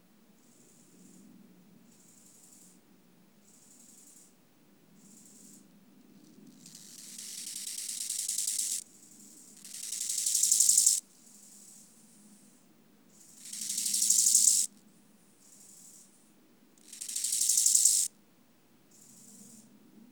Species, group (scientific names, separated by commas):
Chorthippus biguttulus, Orthoptera